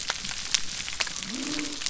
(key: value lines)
label: biophony
recorder: SoundTrap 300